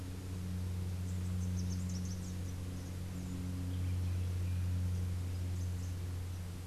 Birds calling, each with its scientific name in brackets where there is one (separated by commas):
Rufous-capped Warbler (Basileuterus rufifrons)